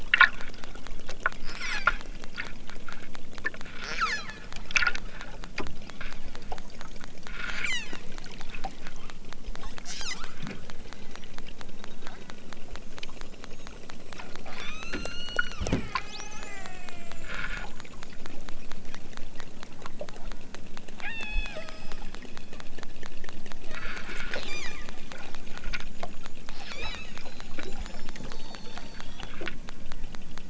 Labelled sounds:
1.5	2.0	killer whale, southern Alaska resident, 0.97 to 8.0 kHz
3.8	4.3	killer whale, southern Alaska resident, 0.74 to 8.0 kHz
5.9	6.4	killer whale, southern Alaska resident, 0.69 to 5.4 kHz
7.2	7.9	killer whale, southern Alaska resident, 0.92 to 8.0 kHz
9.9	10.3	killer whale, southern Alaska resident, 0.64 to 8.0 kHz
14.4	17.2	killer whale, southern Alaska resident, 0.55 to 6.5 kHz
21.0	22.1	killer whale, southern Alaska resident, 0.46 to 7.9 kHz
23.7	24.8	killer whale, southern Alaska resident, 0.88 to 7.4 kHz
26.6	27.0	killer whale, southern Alaska resident, 1.3 to 5.8 kHz

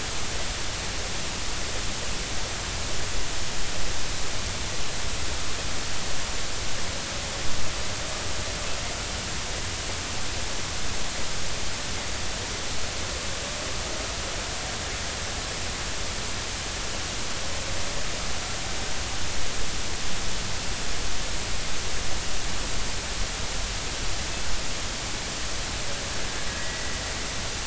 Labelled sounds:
26.6	27.0	killer whale, Bigg's (transient), 1.9 to 2.0 kHz

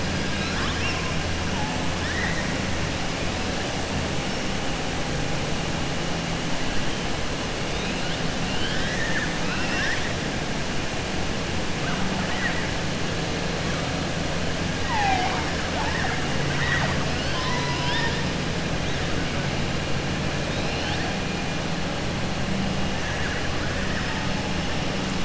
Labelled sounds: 1.9	2.5	killer whale, southern resident, 0.87 to 3.8 kHz
8.4	10.1	killer whale, southern resident, 1.1 to 6.0 kHz
14.8	15.5	killer whale, southern resident, 0.73 to 5.5 kHz
16.4	18.2	killer whale, southern resident, 0.68 to 5.9 kHz

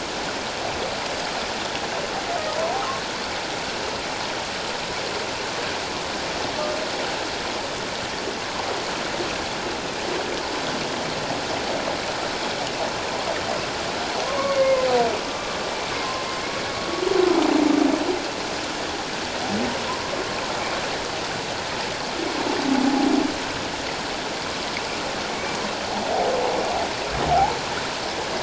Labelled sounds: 2.3	2.5	humpback whale, 1.8 to 2.0 kHz
14.2	14.8	humpback whale, 0.94 to 2.3 kHz
15.2	15.6	humpback whale, 1.1 to 1.2 kHz
25.3	25.6	humpback whale, 2.2 to 2.4 kHz

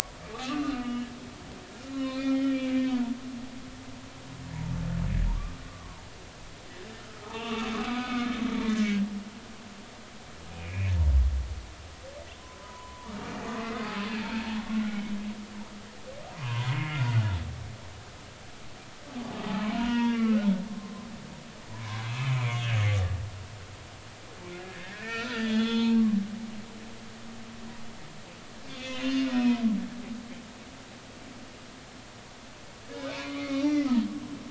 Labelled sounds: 0.3	1.1	humpback whale, 1.1 to 3.0 kHz
1.7	3.1	humpback whale, 0.90 to 4.4 kHz
5.3	6.0	humpback whale, 0.86 to 1.2 kHz
7.2	8.3	humpback whale, 0.80 to 2.8 kHz
8.6	9.0	humpback whale, 1.8 to 2.0 kHz
10.5	10.9	humpback whale, 2.1 to 2.6 kHz
12.4	14.6	humpback whale, 0.86 to 2.1 kHz
14.8	15.1	humpback whale, 2.1 to 2.3 kHz
16.4	17.0	humpback whale, 0.93 to 2.2 kHz
19.7	21.1	humpback whale, 0.90 to 3.4 kHz
21.7	22.7	humpback whale, 0.93 to 3.5 kHz
23.0	23.3	humpback whale, 1.6 to 2.0 kHz
24.6	26.0	humpback whale, 0.86 to 5.3 kHz
28.7	29.6	humpback whale, 1.7 to 3.6 kHz
33.1	33.8	humpback whale, 0.86 to 2.7 kHz

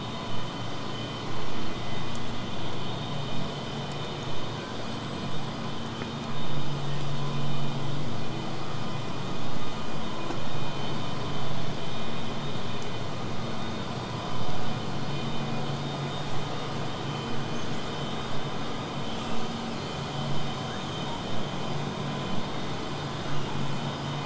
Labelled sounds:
15.9	16.5	killer whale, southern resident, buzz, 7.98 to 8.00 kHz
17.6	17.9	killer whale, southern resident, 6.2 to 8.0 kHz
19.1	20.0	killer whale, southern resident, 1.9 to 8.0 kHz

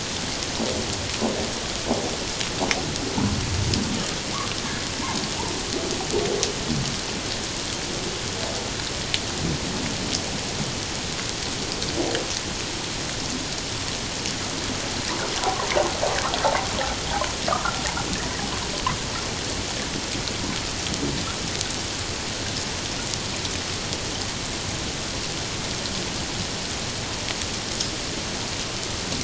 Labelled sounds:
17.5	17.8	humpback whale, 0.97 to 1.5 kHz

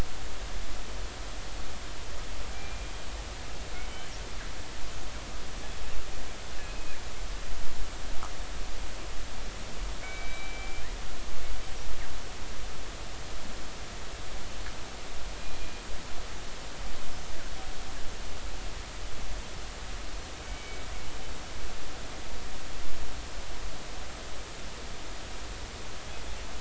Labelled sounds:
2.5	2.9	killer whale, northern resident, G clan, 2.3 to 2.5 kHz
3.9	4.1	killer whale, northern resident, G clan, 3.0 to 3.1 kHz
6.6	7.0	killer whale, northern resident, G clan, 2.3 to 2.6 kHz
10.0	10.9	killer whale, northern resident, G clan, 2.1 to 4.0 kHz
20.4	20.8	killer whale, northern resident, G clan, 2.2 to 2.4 kHz

